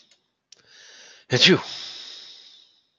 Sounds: Sneeze